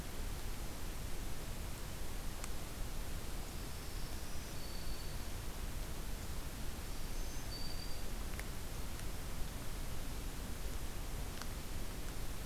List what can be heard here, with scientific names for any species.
Setophaga virens